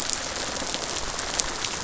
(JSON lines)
{"label": "biophony, rattle response", "recorder": "SoundTrap 500"}